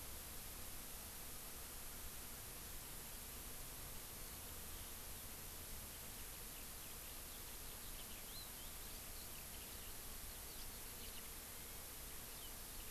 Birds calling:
Eurasian Skylark (Alauda arvensis)

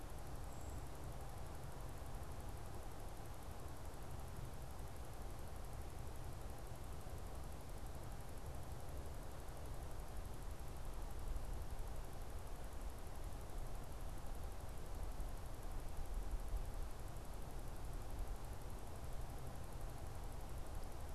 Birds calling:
Brown Creeper (Certhia americana)

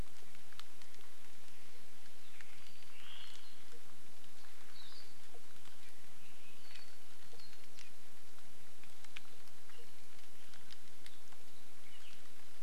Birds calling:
Omao (Myadestes obscurus)
Apapane (Himatione sanguinea)
Hawaii Akepa (Loxops coccineus)

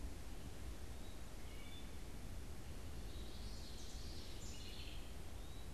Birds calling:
House Wren (Troglodytes aedon)
Wood Thrush (Hylocichla mustelina)
Common Yellowthroat (Geothlypis trichas)
Eastern Wood-Pewee (Contopus virens)

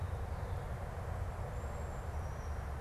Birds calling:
Cedar Waxwing (Bombycilla cedrorum)

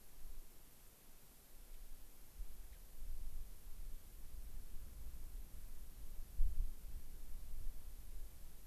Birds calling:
Gray-crowned Rosy-Finch (Leucosticte tephrocotis)

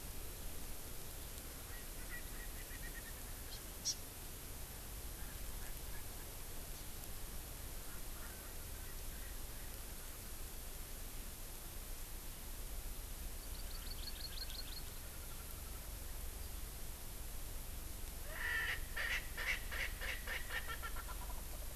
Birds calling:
Hawaii Amakihi (Chlorodrepanis virens)
Erckel's Francolin (Pternistis erckelii)

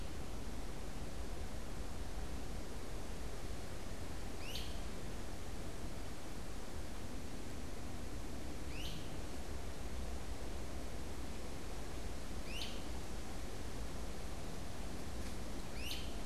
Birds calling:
Great Crested Flycatcher (Myiarchus crinitus)

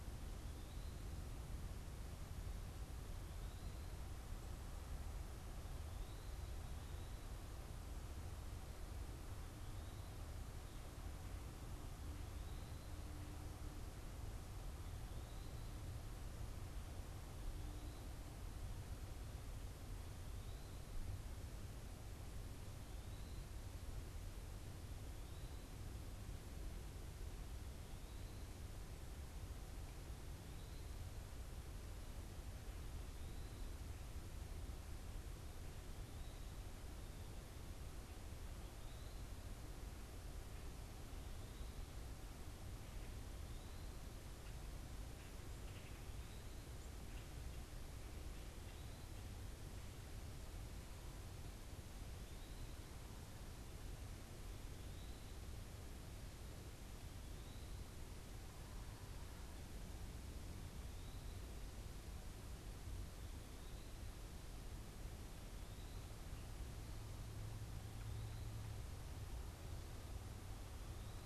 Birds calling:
Common Grackle (Quiscalus quiscula)
Eastern Wood-Pewee (Contopus virens)

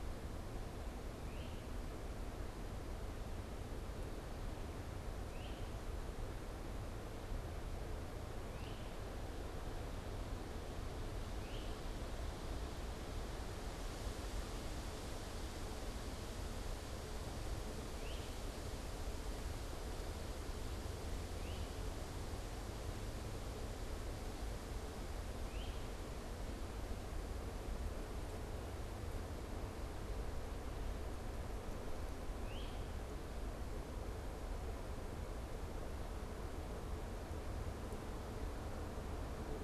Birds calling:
Great Crested Flycatcher (Myiarchus crinitus)

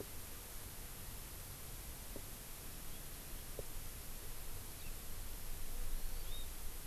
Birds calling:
Hawaii Amakihi (Chlorodrepanis virens)

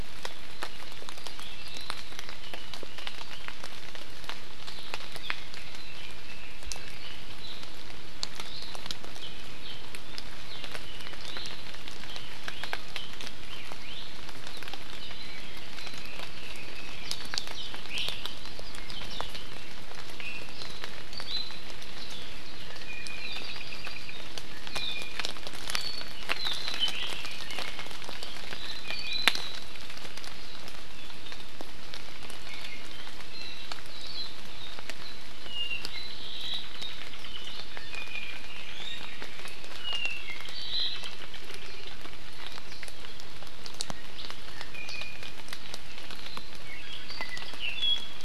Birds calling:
Hawaii Elepaio (Chasiempis sandwichensis)
Red-billed Leiothrix (Leiothrix lutea)
Apapane (Himatione sanguinea)
Iiwi (Drepanis coccinea)

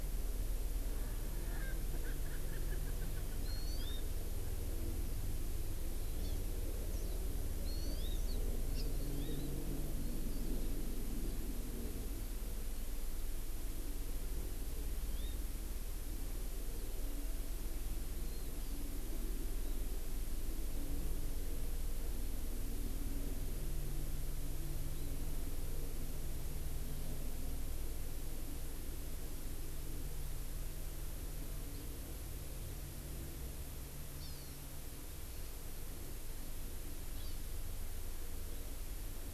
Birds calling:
Erckel's Francolin (Pternistis erckelii)
Hawaii Amakihi (Chlorodrepanis virens)

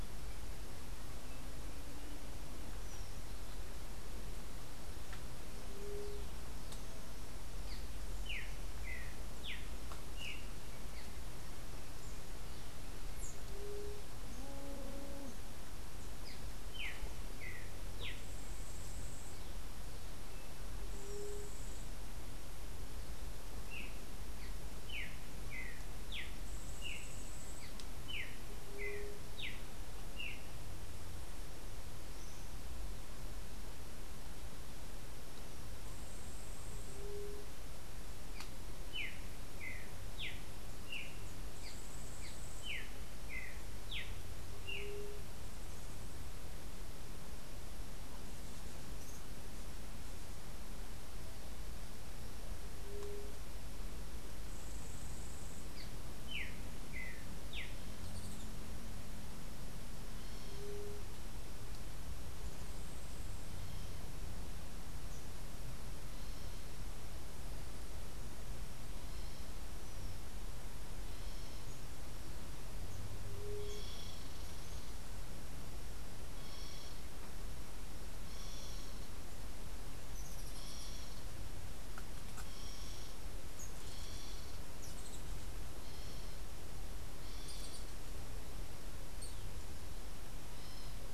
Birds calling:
Yellow-faced Grassquit (Tiaris olivaceus)
Rufous-tailed Hummingbird (Amazilia tzacatl)
Streaked Saltator (Saltator striatipectus)
White-tipped Dove (Leptotila verreauxi)

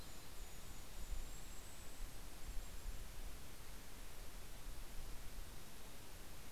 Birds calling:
Golden-crowned Kinglet (Regulus satrapa)
Mountain Chickadee (Poecile gambeli)
Red-breasted Nuthatch (Sitta canadensis)
Yellow-rumped Warbler (Setophaga coronata)

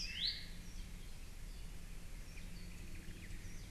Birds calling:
Apapane (Himatione sanguinea)
Omao (Myadestes obscurus)
Iiwi (Drepanis coccinea)
Warbling White-eye (Zosterops japonicus)

